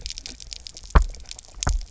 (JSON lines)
{"label": "biophony, double pulse", "recorder": "SoundTrap 300"}